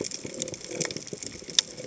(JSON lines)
{"label": "biophony", "recorder": "HydroMoth"}